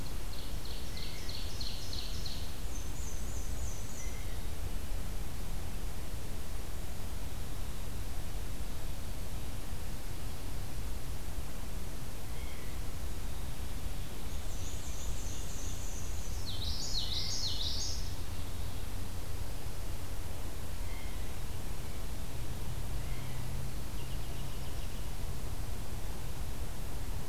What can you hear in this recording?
Ovenbird, Blue Jay, Black-and-white Warbler, Common Yellowthroat